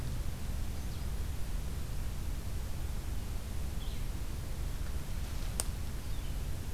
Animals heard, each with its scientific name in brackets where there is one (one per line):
Blue-headed Vireo (Vireo solitarius)